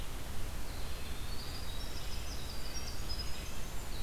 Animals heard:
Red-breasted Nuthatch (Sitta canadensis), Red-eyed Vireo (Vireo olivaceus), Winter Wren (Troglodytes hiemalis)

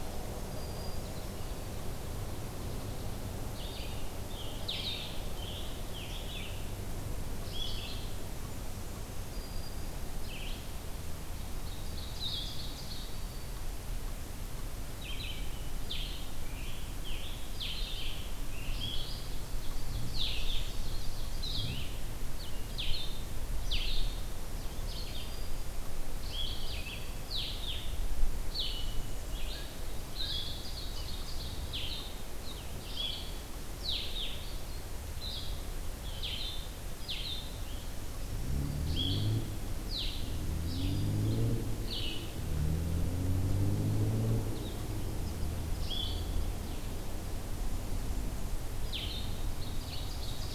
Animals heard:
Ovenbird (Seiurus aurocapilla), Black-throated Green Warbler (Setophaga virens), Red-eyed Vireo (Vireo olivaceus), Blue-headed Vireo (Vireo solitarius), Scarlet Tanager (Piranga olivacea)

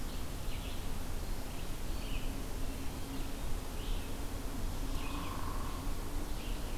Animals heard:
Red-eyed Vireo (Vireo olivaceus), Hairy Woodpecker (Dryobates villosus)

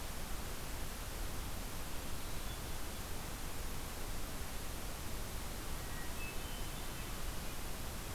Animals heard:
Hermit Thrush (Catharus guttatus)

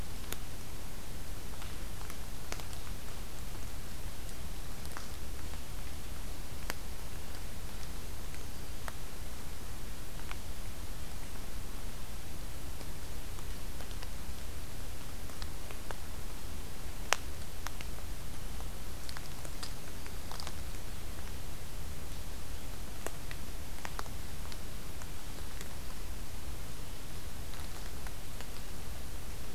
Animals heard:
Black-throated Green Warbler (Setophaga virens)

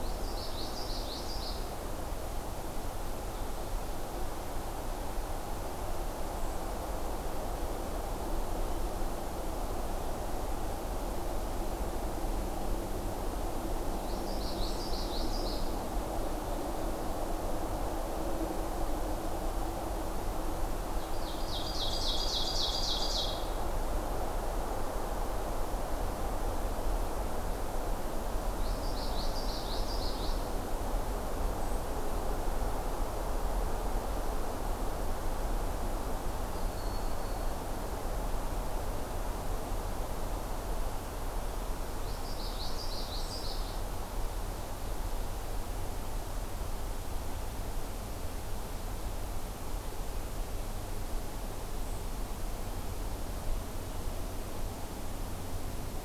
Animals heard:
Common Yellowthroat (Geothlypis trichas), Eastern Wood-Pewee (Contopus virens), Ovenbird (Seiurus aurocapilla)

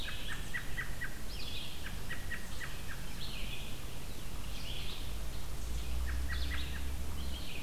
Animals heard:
American Robin (Turdus migratorius), Red-eyed Vireo (Vireo olivaceus)

